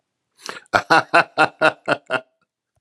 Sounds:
Laughter